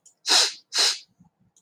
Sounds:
Sniff